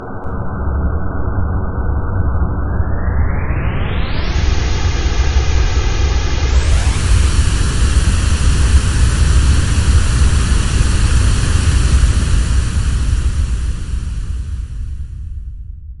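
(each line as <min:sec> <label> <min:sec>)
0:00.0 An artificial take-off sound. 0:15.9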